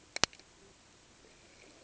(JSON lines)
{"label": "ambient", "recorder": "HydroMoth"}